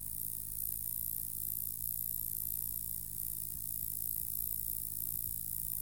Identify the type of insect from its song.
orthopteran